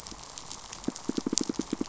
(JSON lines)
{"label": "biophony, pulse", "recorder": "SoundTrap 500"}